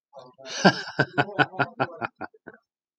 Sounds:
Laughter